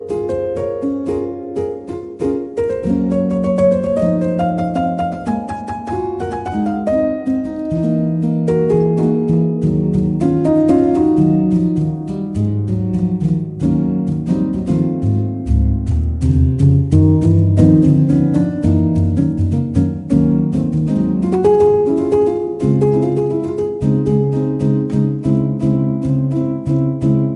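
Someone is playing a slow, acoustic, up-tempo jazz melody on the piano. 0.0 - 27.4

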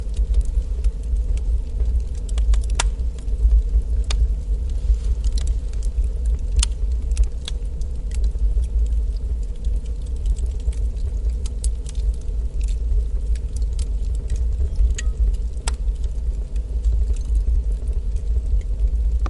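A fire burns with crackling wood popping and hissing intermittently, creating a dynamic, rhythmic sound that gradually fluctuates in intensity. 0.0 - 19.3

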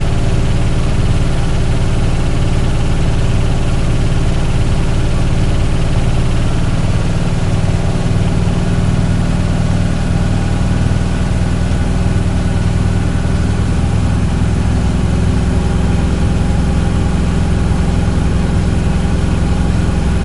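A lawnmower buzzing loudly. 0.0 - 20.2

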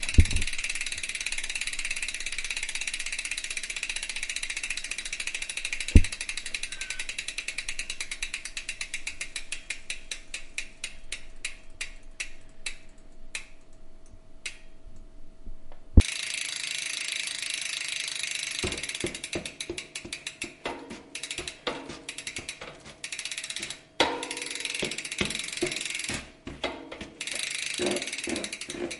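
A bicycle whirrs in a gradually decreasing and repeating pattern. 0.0 - 29.0

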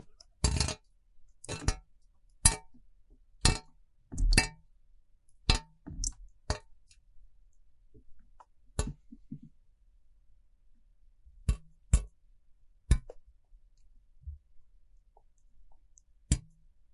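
Raindrops hit a metal surface with a high-pitched sound repeatedly. 0.4 - 0.9
Raindrops hit a metal surface in short succession, fading out. 1.4 - 2.4
A raindrop hits a metal surface loudly. 2.4 - 2.7
Faint dull clicking sounds in the background. 2.7 - 3.3
Raindrops hitting a metal surface loudly in short succession. 3.4 - 4.8
A raindrop hits a metal surface loudly. 5.4 - 5.7
A short, dull resonating sound. 5.8 - 6.3
A raindrop hits a metal surface dully. 6.4 - 6.8
Faint dull clicking sounds. 7.8 - 8.7
A raindrop hits a metal surface loudly. 8.7 - 9.0
A faint, dull clicking sound resonates in the background. 9.0 - 9.7
Raindrops hit a metal surface in short succession. 11.4 - 12.3
A raindrop hits a metal surface once and fades out. 12.8 - 14.1
A dull thud of a microphone being hit. 14.2 - 14.5
Raindrops faintly hitting a surface in the distance. 14.9 - 16.1
A raindrop hits a metal surface once and fades out. 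16.2 - 16.9

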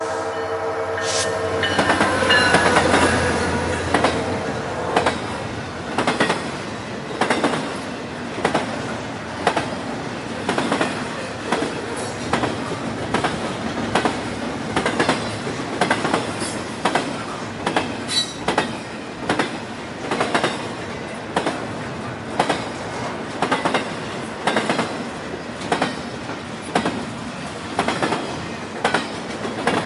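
A train engine is making repetitive sounds. 0.1 - 29.9
A train is horn sounding. 1.0 - 3.8

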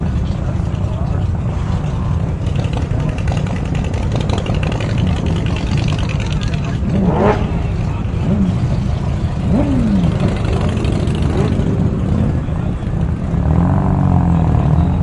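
A powerful car engine produces a gurgling sound. 0.0 - 6.9
People talking, chatting, and shouting in the distance. 0.0 - 15.0
A powerful car engine produces gurgling and varying roaring sounds. 6.9 - 13.3
A powerful car engine producing a gurgling sound as it accelerates. 13.3 - 15.0

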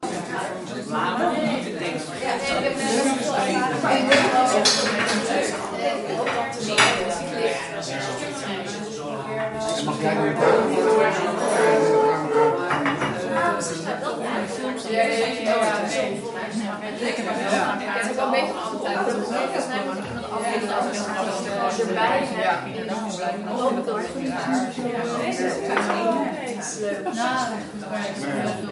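People talking indoors. 0.0 - 28.7

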